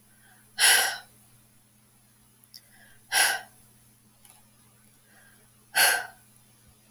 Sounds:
Sigh